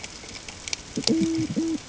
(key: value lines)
label: ambient
recorder: HydroMoth